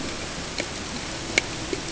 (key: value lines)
label: ambient
recorder: HydroMoth